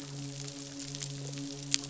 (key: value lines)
label: biophony, midshipman
recorder: SoundTrap 500